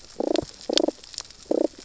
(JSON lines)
{"label": "biophony, damselfish", "recorder": "SoundTrap 600 or HydroMoth"}